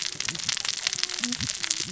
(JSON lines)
{"label": "biophony, cascading saw", "recorder": "SoundTrap 600 or HydroMoth"}